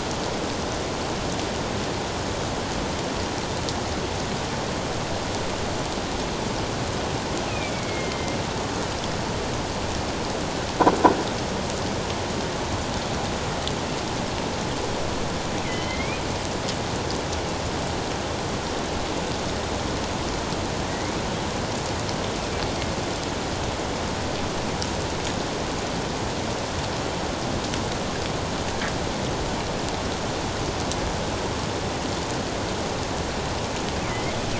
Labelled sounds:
7.5	8.4	killer whale, northern resident, A clan, AA subclan, A04 pod, 2.0 to 2.7 kHz
15.6	16.2	killer whale, northern resident, A clan, AA subclan, A04 pod, 1.9 to 3.3 kHz
20.9	21.2	killer whale, northern resident, A clan, AA subclan, A04 pod, 1.9 to 2.3 kHz
34.0	34.4	killer whale, northern resident, A clan, AA subclan, A04 pod, 1.9 to 2.4 kHz

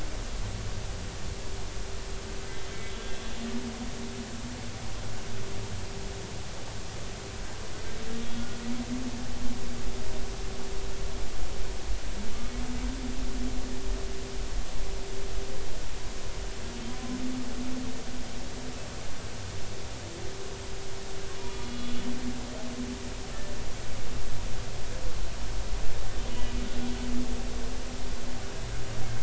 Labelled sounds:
2.9	3.1	humpback whale, 3.4 to 3.5 kHz
8.2	8.5	humpback whale, 3.3 to 3.4 kHz
21.4	21.9	humpback whale, 2.4 to 3.5 kHz
26.3	26.5	humpback whale, 2.9 to 3.0 kHz

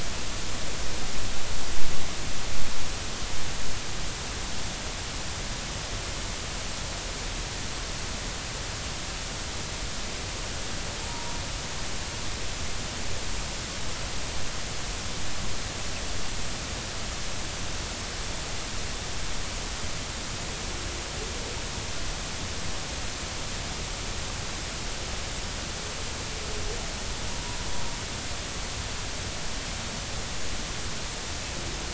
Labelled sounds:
11.1	11.3	humpback whale, 0.90 to 0.99 kHz
27.4	27.6	humpback whale, 0.93 to 1.0 kHz

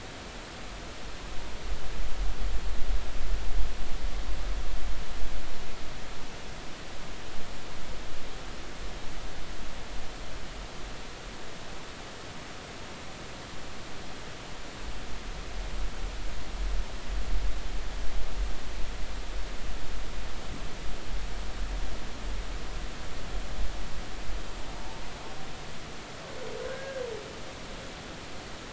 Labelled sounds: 26.7	27.0	humpback whale, 1.4 to 1.7 kHz

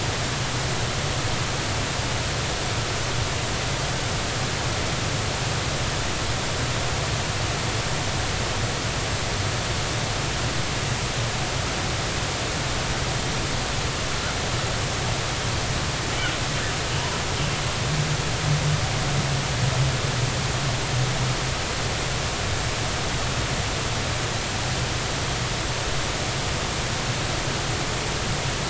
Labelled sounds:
17.0	17.2	humpback whale, 0.90 to 1.1 kHz

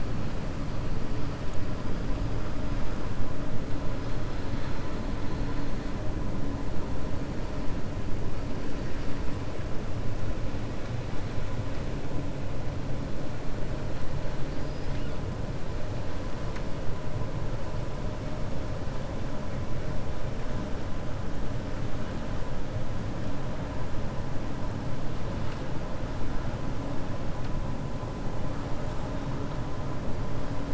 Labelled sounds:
14.5	15.0	killer whale, 4.1 to 6.0 kHz

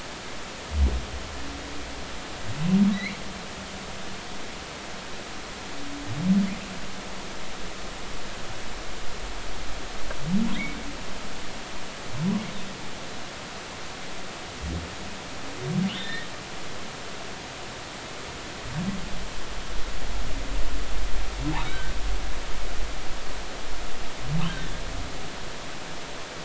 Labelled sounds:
2.9	3.2	humpback whale, 1.8 to 2.4 kHz
10.5	10.8	humpback whale, 1.9 to 2.3 kHz
15.9	16.3	humpback whale, 1.7 to 3.8 kHz
21.5	21.9	humpback whale, 1.4 to 4.0 kHz

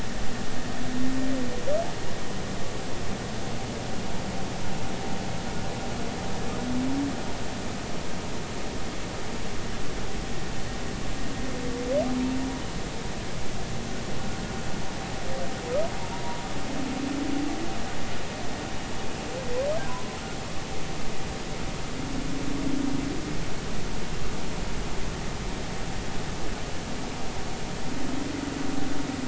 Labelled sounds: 19.9	20.2	humpback whale, 0.96 to 1.1 kHz

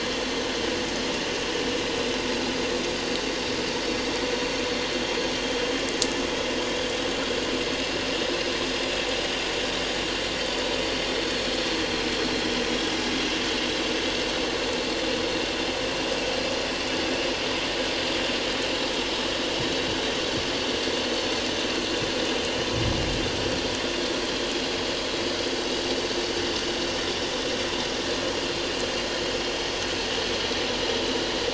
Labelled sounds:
11.2	11.5	vessel noise, 4.2 to 4.4 kHz

